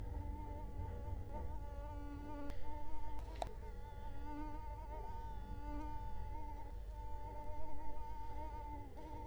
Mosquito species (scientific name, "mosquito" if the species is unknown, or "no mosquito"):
Culex quinquefasciatus